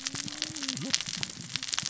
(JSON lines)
{"label": "biophony, cascading saw", "recorder": "SoundTrap 600 or HydroMoth"}